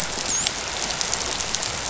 {"label": "biophony, dolphin", "recorder": "SoundTrap 500"}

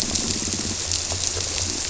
{"label": "biophony, squirrelfish (Holocentrus)", "recorder": "SoundTrap 300"}
{"label": "biophony", "recorder": "SoundTrap 300"}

